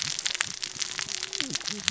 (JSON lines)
{"label": "biophony, cascading saw", "recorder": "SoundTrap 600 or HydroMoth"}